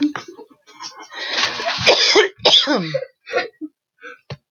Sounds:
Cough